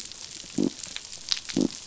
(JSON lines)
{"label": "biophony", "recorder": "SoundTrap 500"}